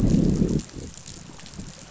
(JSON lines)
{"label": "biophony, growl", "recorder": "SoundTrap 500"}